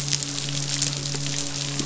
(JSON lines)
{"label": "biophony, midshipman", "recorder": "SoundTrap 500"}